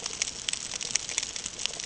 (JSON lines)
{"label": "ambient", "recorder": "HydroMoth"}